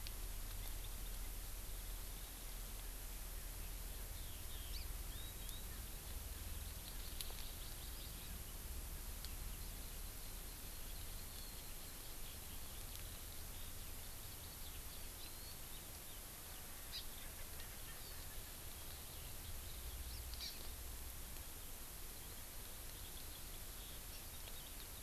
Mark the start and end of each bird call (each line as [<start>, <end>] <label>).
[4.20, 4.80] Eurasian Skylark (Alauda arvensis)
[4.70, 4.90] Hawaii Amakihi (Chlorodrepanis virens)
[6.80, 8.30] Hawaii Amakihi (Chlorodrepanis virens)
[9.60, 16.20] Eurasian Skylark (Alauda arvensis)
[16.90, 17.00] Hawaii Amakihi (Chlorodrepanis virens)
[17.20, 18.80] Erckel's Francolin (Pternistis erckelii)
[20.40, 20.50] Hawaii Amakihi (Chlorodrepanis virens)
[24.10, 24.20] Hawaii Amakihi (Chlorodrepanis virens)